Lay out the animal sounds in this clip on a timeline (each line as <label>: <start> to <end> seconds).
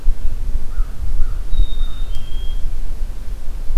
American Crow (Corvus brachyrhynchos): 0.6 to 2.1 seconds
Black-capped Chickadee (Poecile atricapillus): 1.4 to 2.8 seconds